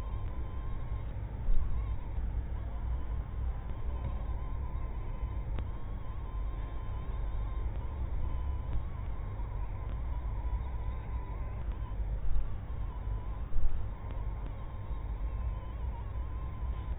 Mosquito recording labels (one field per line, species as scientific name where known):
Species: mosquito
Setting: cup